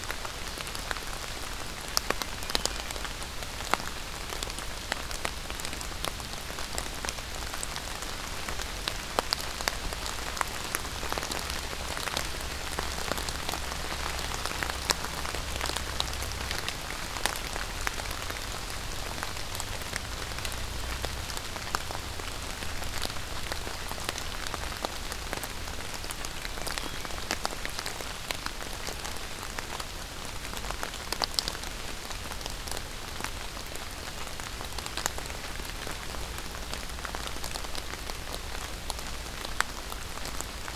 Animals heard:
forest ambience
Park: Acadia National Park